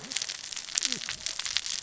{"label": "biophony, cascading saw", "recorder": "SoundTrap 600 or HydroMoth"}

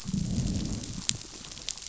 {"label": "biophony, growl", "recorder": "SoundTrap 500"}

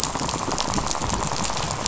{"label": "biophony, rattle", "recorder": "SoundTrap 500"}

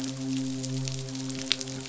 {"label": "biophony, midshipman", "recorder": "SoundTrap 500"}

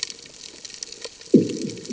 {"label": "anthrophony, bomb", "recorder": "HydroMoth"}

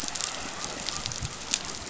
{"label": "biophony", "recorder": "SoundTrap 500"}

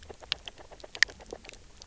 {"label": "biophony, grazing", "recorder": "SoundTrap 300"}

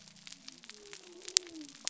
{"label": "biophony", "recorder": "SoundTrap 300"}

